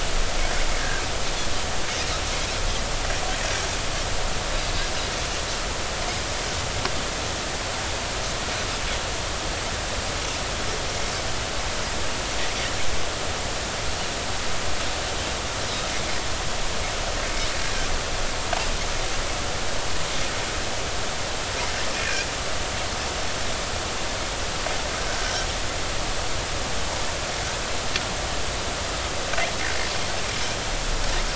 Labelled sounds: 21.9	22.3	Pacific white-sided dolphin, 2.3 to 2.5 kHz

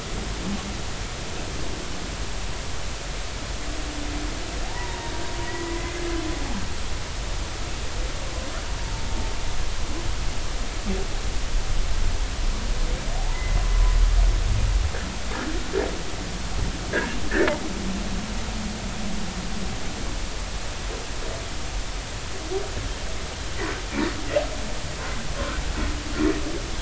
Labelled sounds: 4.6	5.7	humpback whale, 0.80 to 2.0 kHz
13.2	14.6	humpback whale, 0.80 to 2.1 kHz

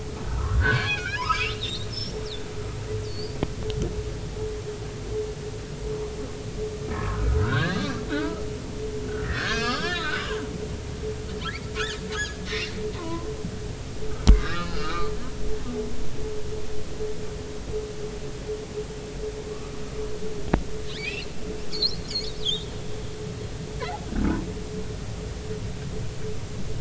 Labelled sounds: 0.3	2.2	humpback whale, 0.86 to 5.7 kHz
3.0	3.3	humpback whale, 4.3 to 5.1 kHz
6.9	8.4	humpback whale, 1.0 to 2.0 kHz
9.2	10.4	humpback whale, 1.0 to 5.6 kHz
11.8	12.4	humpback whale, 1.3 to 2.0 kHz
12.9	13.3	humpback whale, 0.90 to 1.1 kHz
14.3	15.1	humpback whale, 1.1 to 4.4 kHz
20.9	21.3	humpback whale, 2.1 to 5.1 kHz
21.7	22.7	humpback whale, 2.9 to 5.0 kHz

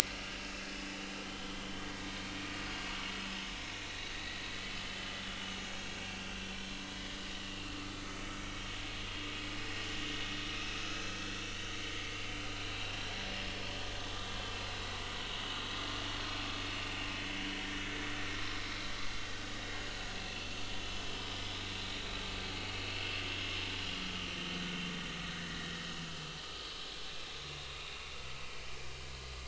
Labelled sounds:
0.1	0.6	vessel noise, 2.6 to 2.9 kHz
2.0	2.2	vessel noise, 2.2 to 2.3 kHz
3.8	4.5	vessel noise, 3.7 to 4.0 kHz
7.4	7.7	vessel noise, 2.6 to 2.9 kHz
12.5	12.8	vessel noise, 3.8 to 4.1 kHz
20.2	20.8	vessel noise, 2.6 to 4.5 kHz
24.0	24.3	vessel noise, 1.2 to 1.3 kHz
25.5	26.4	vessel noise, 3.7 to 4.9 kHz

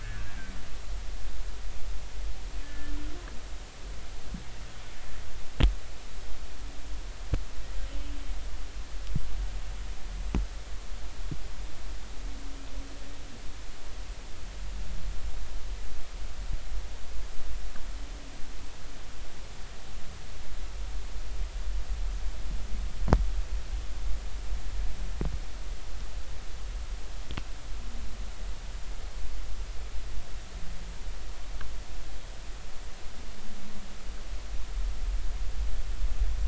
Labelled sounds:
0.0	0.3	humpback whale, 1.4 to 1.8 kHz
2.6	3.0	humpback whale, 1.3 to 1.8 kHz

